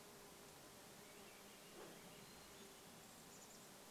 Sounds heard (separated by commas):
Hermit Thrush song, Swainson's Thrush song, insect buzz, Chestnut-backed Chickadee call, dog bark